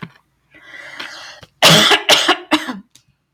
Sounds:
Cough